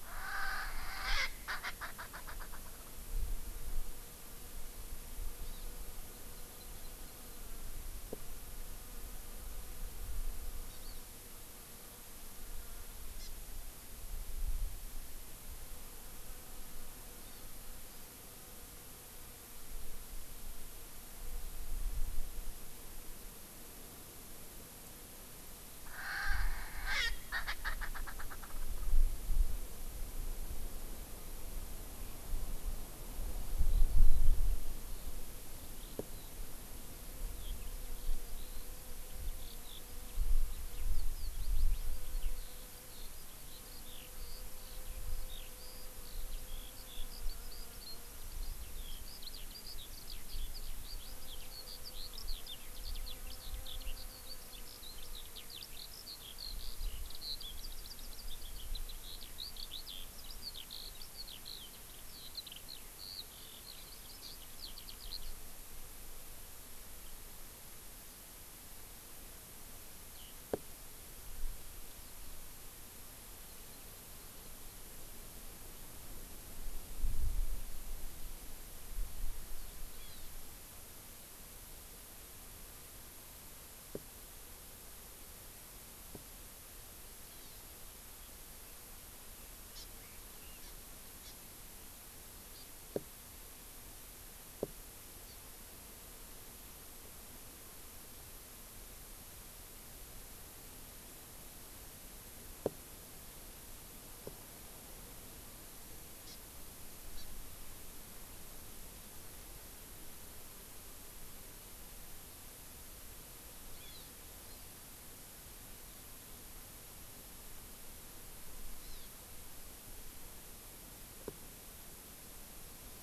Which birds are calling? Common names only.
Erckel's Francolin, Hawaii Amakihi, Eurasian Skylark